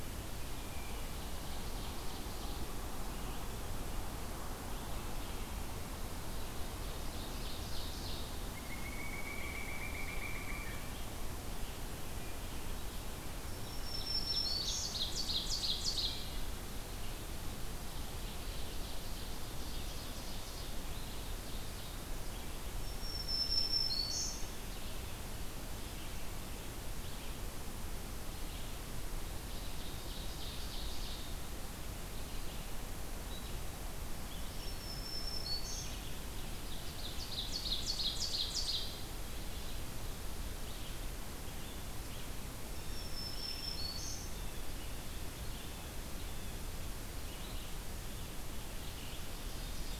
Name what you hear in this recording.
Ovenbird, Pileated Woodpecker, Black-throated Green Warbler, Red-eyed Vireo